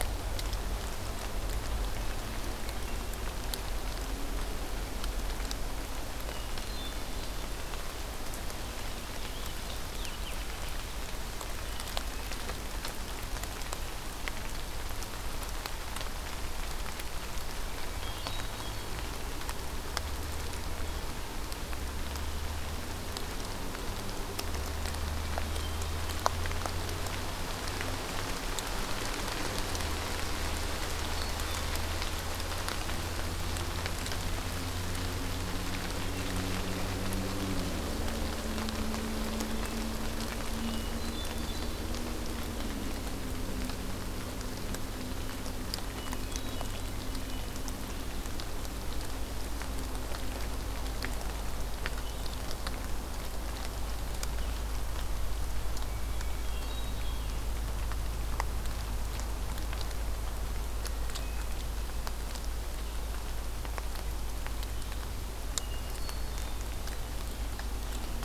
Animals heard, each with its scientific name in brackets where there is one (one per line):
Hermit Thrush (Catharus guttatus)
Purple Finch (Haemorhous purpureus)